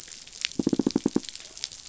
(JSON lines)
{"label": "biophony, knock", "recorder": "SoundTrap 500"}